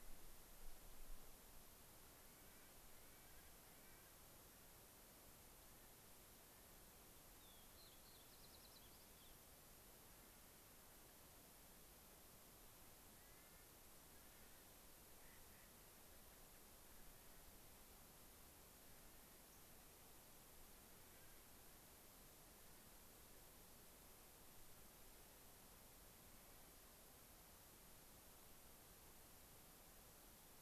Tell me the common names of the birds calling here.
Clark's Nutcracker, Fox Sparrow